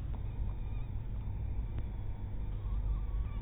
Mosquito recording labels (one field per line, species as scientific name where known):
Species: mosquito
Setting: cup